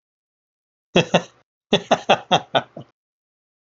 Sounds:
Laughter